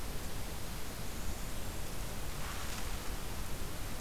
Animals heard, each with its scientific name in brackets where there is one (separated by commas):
Blackburnian Warbler (Setophaga fusca)